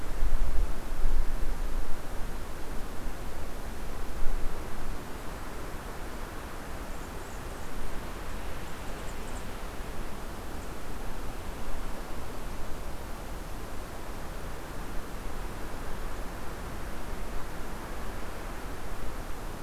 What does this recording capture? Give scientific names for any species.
Setophaga fusca, Junco hyemalis